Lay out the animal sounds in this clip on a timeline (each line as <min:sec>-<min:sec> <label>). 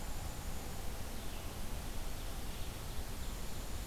0:00.0-0:03.9 Black-capped Chickadee (Poecile atricapillus)
0:00.0-0:03.9 Red-eyed Vireo (Vireo olivaceus)